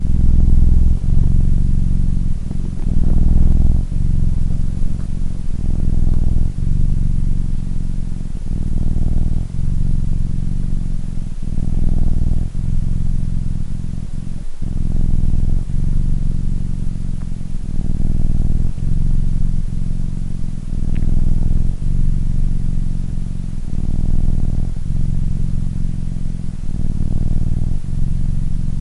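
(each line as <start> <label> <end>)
0.0 A cat is purring steadily. 28.8
0.0 Background noise. 28.8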